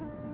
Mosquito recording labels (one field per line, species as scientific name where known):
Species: Culex tarsalis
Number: one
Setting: insect culture